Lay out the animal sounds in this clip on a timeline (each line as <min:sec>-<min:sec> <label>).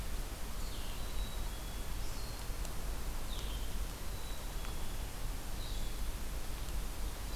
0:00.0-0:07.4 Blue-headed Vireo (Vireo solitarius)
0:00.8-0:02.0 Black-capped Chickadee (Poecile atricapillus)
0:03.9-0:05.1 Black-capped Chickadee (Poecile atricapillus)